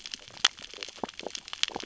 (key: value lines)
label: biophony, stridulation
recorder: SoundTrap 600 or HydroMoth